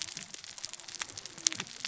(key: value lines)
label: biophony, cascading saw
recorder: SoundTrap 600 or HydroMoth